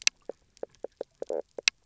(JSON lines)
{"label": "biophony, knock croak", "recorder": "SoundTrap 300"}